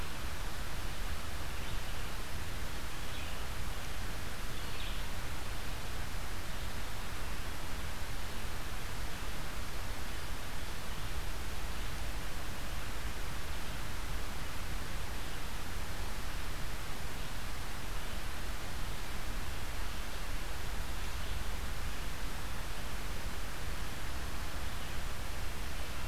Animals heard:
Red-eyed Vireo (Vireo olivaceus)

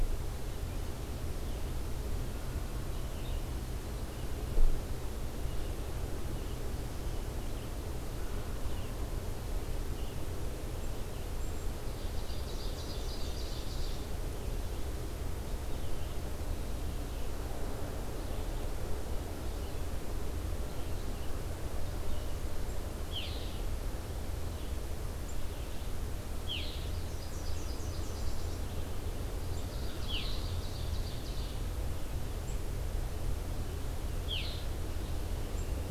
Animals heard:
Ovenbird (Seiurus aurocapilla), Nashville Warbler (Leiothlypis ruficapilla), Red-eyed Vireo (Vireo olivaceus)

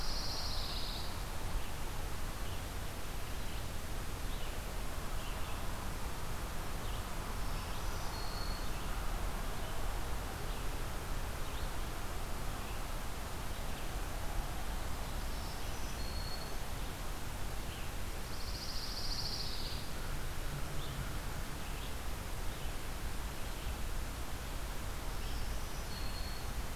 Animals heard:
Red-eyed Vireo (Vireo olivaceus), Black-throated Green Warbler (Setophaga virens), Pine Warbler (Setophaga pinus)

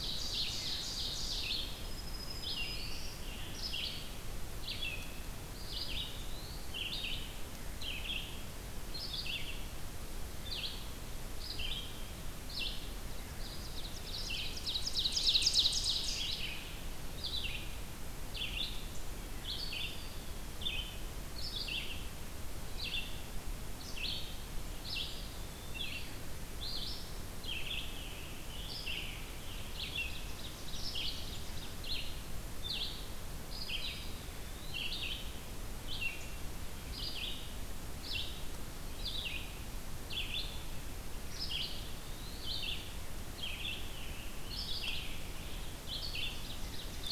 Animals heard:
Scarlet Tanager (Piranga olivacea), Eastern Wood-Pewee (Contopus virens), Red-eyed Vireo (Vireo olivaceus), Black-throated Green Warbler (Setophaga virens), Ovenbird (Seiurus aurocapilla)

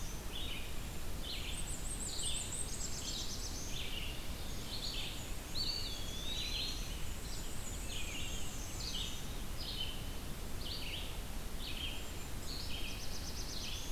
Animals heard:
Black-throated Blue Warbler (Setophaga caerulescens), Eastern Wood-Pewee (Contopus virens), Red-eyed Vireo (Vireo olivaceus), Black-and-white Warbler (Mniotilta varia)

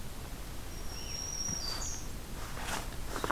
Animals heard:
Blue-headed Vireo (Vireo solitarius), Black-throated Green Warbler (Setophaga virens)

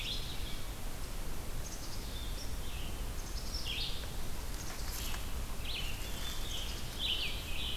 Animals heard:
Black-capped Chickadee (Poecile atricapillus), Scarlet Tanager (Piranga olivacea), Red-eyed Vireo (Vireo olivaceus)

